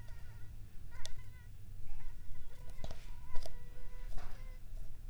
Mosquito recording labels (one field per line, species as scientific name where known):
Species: Anopheles arabiensis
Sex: female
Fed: unfed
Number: one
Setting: cup